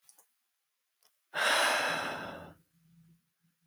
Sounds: Sigh